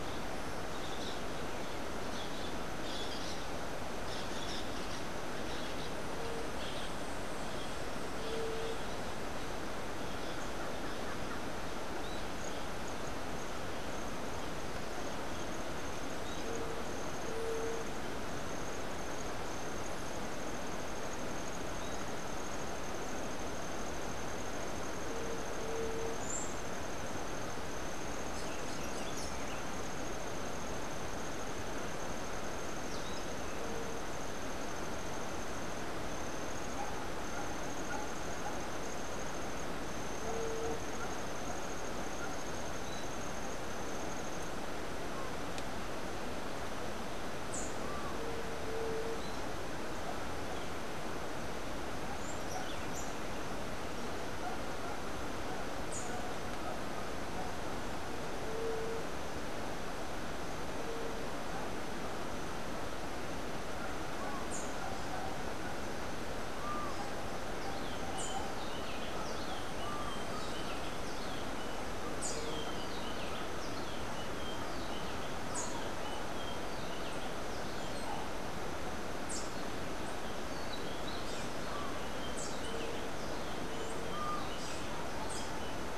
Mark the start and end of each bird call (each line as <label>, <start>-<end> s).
Crimson-fronted Parakeet (Psittacara finschi), 0.6-6.9 s
Buff-throated Saltator (Saltator maximus), 26.1-26.6 s
Buff-throated Saltator (Saltator maximus), 28.2-29.5 s
Rufous-capped Warbler (Basileuterus rufifrons), 47.4-47.8 s
Buff-throated Saltator (Saltator maximus), 52.1-53.3 s
Rufous-capped Warbler (Basileuterus rufifrons), 64.4-68.4 s
Rufous-breasted Wren (Pheugopedius rutilus), 67.6-83.1 s